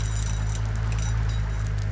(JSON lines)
{"label": "anthrophony, boat engine", "recorder": "SoundTrap 500"}